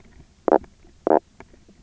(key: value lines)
label: biophony, knock croak
recorder: SoundTrap 300